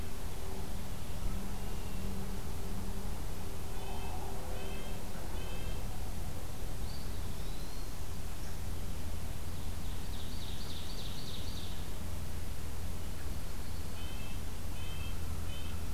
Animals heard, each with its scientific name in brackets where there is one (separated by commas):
Ovenbird (Seiurus aurocapilla), Yellow-rumped Warbler (Setophaga coronata), Eastern Wood-Pewee (Contopus virens), Northern Parula (Setophaga americana), Red-breasted Nuthatch (Sitta canadensis)